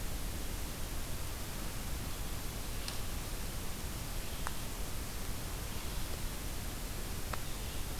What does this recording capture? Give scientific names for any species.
forest ambience